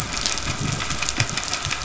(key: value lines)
label: anthrophony, boat engine
recorder: SoundTrap 500